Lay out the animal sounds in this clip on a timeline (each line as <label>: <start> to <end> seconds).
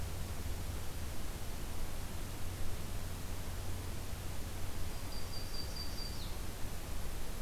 Yellow-rumped Warbler (Setophaga coronata): 4.8 to 6.5 seconds